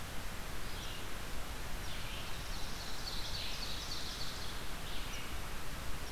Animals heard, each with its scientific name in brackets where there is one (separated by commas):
Ovenbird (Seiurus aurocapilla), Red-eyed Vireo (Vireo olivaceus), Northern Parula (Setophaga americana)